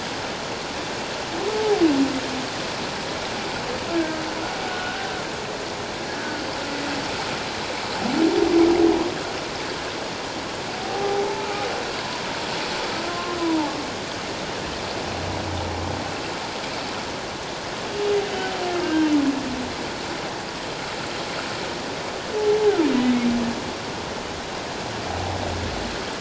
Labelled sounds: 1.5	1.8	humpback whale, 0.78 to 0.91 kHz
3.9	4.2	humpback whale, 1.5 to 1.7 kHz
4.7	5.0	humpback whale, 1.4 to 1.5 kHz
6.1	6.4	humpback whale, 1.4 to 1.8 kHz
10.8	11.6	humpback whale, 0.78 to 1.4 kHz
13.1	13.8	humpback whale, 0.81 to 1.1 kHz
18.8	19.2	humpback whale, 1.5 to 3.2 kHz

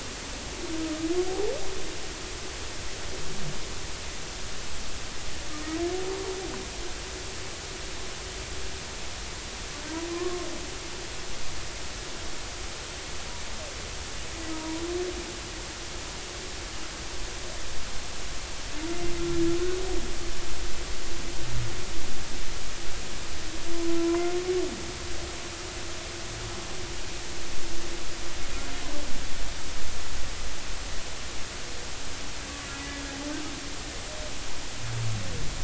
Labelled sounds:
10.1	10.5	humpback whale, 0.99 to 1.2 kHz
14.5	14.8	humpback whale, 0.90 to 1.0 kHz
24.0	24.4	humpback whale, 0.93 to 2.2 kHz
32.9	33.2	humpback whale, 1.6 to 1.8 kHz

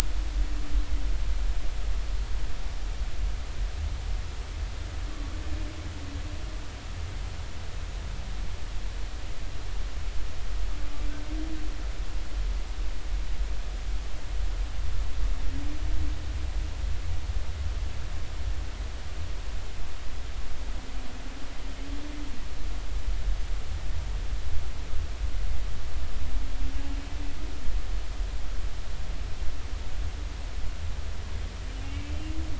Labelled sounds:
31.8	32.1	humpback whale, 2.1 to 2.9 kHz

